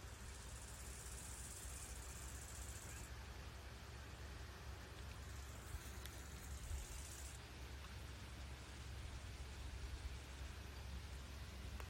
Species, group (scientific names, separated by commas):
Chorthippus biguttulus, Orthoptera